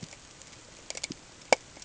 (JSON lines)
{"label": "ambient", "recorder": "HydroMoth"}